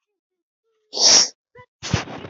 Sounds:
Sniff